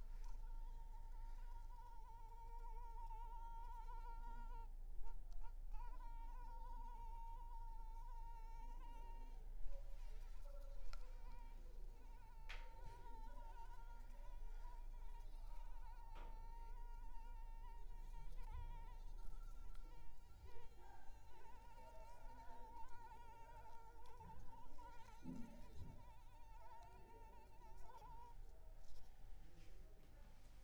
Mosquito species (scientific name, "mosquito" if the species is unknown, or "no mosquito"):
Anopheles arabiensis